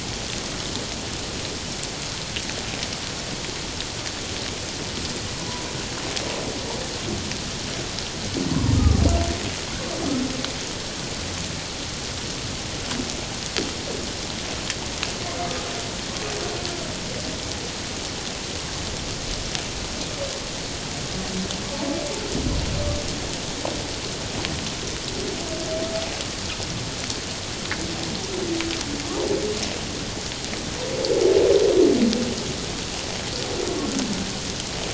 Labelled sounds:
8.5	9.0	humpback whale, 0.88 to 1.3 kHz

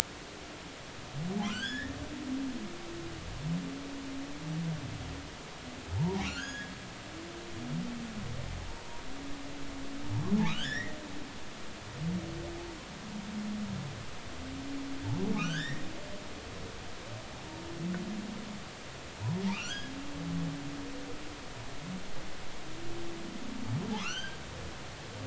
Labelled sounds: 1.4	1.9	humpback whale, 1.2 to 5.5 kHz
6.0	6.7	humpback whale, 0.80 to 6.8 kHz
10.5	11.0	humpback whale, 1.1 to 3.8 kHz
15.3	15.8	humpback whale, 1.2 to 3.8 kHz
19.5	19.9	humpback whale, 1.1 to 3.4 kHz
23.9	24.4	humpback whale, 0.80 to 4.8 kHz

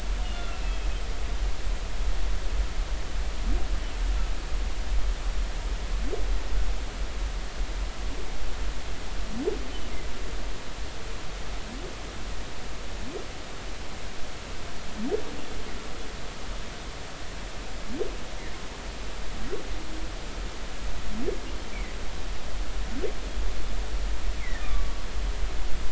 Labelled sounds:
24.4	25.0	humpback whale, 1.0 to 2.3 kHz

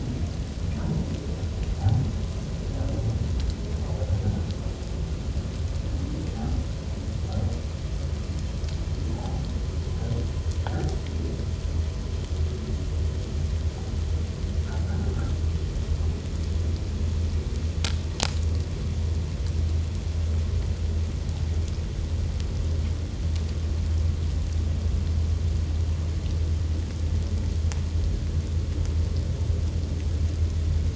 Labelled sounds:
9.1	9.4	humpback whale, 0.78 to 0.94 kHz
10.6	10.9	humpback whale, 1.4 to 1.8 kHz

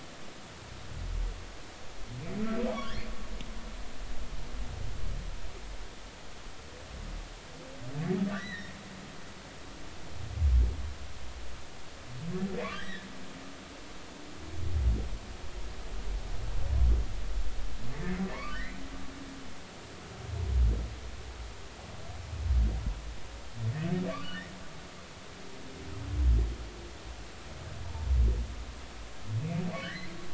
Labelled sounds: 2.7	3.0	humpback whale, 2.8 to 3.5 kHz
8.3	8.7	humpback whale, 1.4 to 4.0 kHz
12.7	13.1	humpback whale, 1.5 to 2.0 kHz
18.3	18.8	humpback whale, 1.0 to 2.1 kHz
24.1	24.4	humpback whale, 1.1 to 1.2 kHz
29.8	30.1	humpback whale, 1.4 to 2.1 kHz

